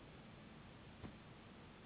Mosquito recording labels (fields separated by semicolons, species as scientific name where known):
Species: Anopheles gambiae s.s.; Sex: female; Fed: unfed; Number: one; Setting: insect culture